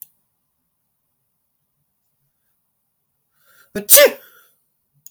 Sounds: Sneeze